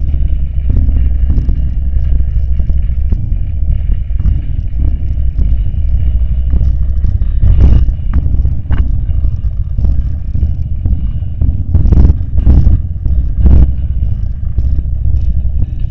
Does the sound get louder?
yes